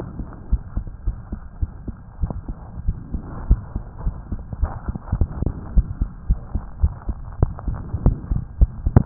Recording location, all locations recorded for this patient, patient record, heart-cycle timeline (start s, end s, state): aortic valve (AV)
aortic valve (AV)+pulmonary valve (PV)+tricuspid valve (TV)+mitral valve (MV)
#Age: Child
#Sex: Female
#Height: 112.0 cm
#Weight: 22.3 kg
#Pregnancy status: False
#Murmur: Present
#Murmur locations: pulmonary valve (PV)+tricuspid valve (TV)
#Most audible location: pulmonary valve (PV)
#Systolic murmur timing: Holosystolic
#Systolic murmur shape: Plateau
#Systolic murmur grading: I/VI
#Systolic murmur pitch: Low
#Systolic murmur quality: Blowing
#Diastolic murmur timing: nan
#Diastolic murmur shape: nan
#Diastolic murmur grading: nan
#Diastolic murmur pitch: nan
#Diastolic murmur quality: nan
#Outcome: Abnormal
#Campaign: 2015 screening campaign
0.00	0.48	unannotated
0.48	0.62	S1
0.62	0.74	systole
0.74	0.88	S2
0.88	1.04	diastole
1.04	1.16	S1
1.16	1.30	systole
1.30	1.42	S2
1.42	1.60	diastole
1.60	1.72	S1
1.72	1.86	systole
1.86	1.98	S2
1.98	2.17	diastole
2.17	2.30	S1
2.30	2.45	systole
2.45	2.55	S2
2.55	2.85	diastole
2.85	2.98	S1
2.98	3.12	systole
3.12	3.24	S2
3.24	3.44	diastole
3.44	3.58	S1
3.58	3.73	systole
3.73	3.84	S2
3.84	4.02	diastole
4.02	4.16	S1
4.16	4.30	systole
4.30	4.42	S2
4.42	4.60	diastole
4.60	4.72	S1
4.72	4.84	systole
4.84	4.94	S2
4.94	5.74	unannotated
5.74	5.86	S1
5.86	5.99	systole
5.99	6.10	S2
6.10	6.26	diastole
6.26	6.40	S1
6.40	6.52	systole
6.52	6.62	S2
6.62	6.80	diastole
6.80	6.94	S1
6.94	7.06	systole
7.06	7.16	S2
7.16	7.40	diastole
7.40	7.52	S1
7.52	7.66	systole
7.66	7.75	S2
7.75	9.06	unannotated